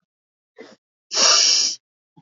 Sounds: Sniff